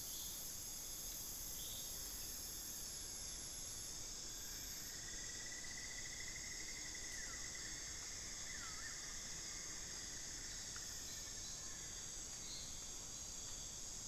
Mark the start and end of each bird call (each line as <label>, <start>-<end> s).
Cinnamon-throated Woodcreeper (Dendrexetastes rufigula), 1.2-12.1 s
Buff-throated Woodcreeper (Xiphorhynchus guttatus), 6.9-9.1 s
Collared Forest-Falcon (Micrastur semitorquatus), 8.1-12.0 s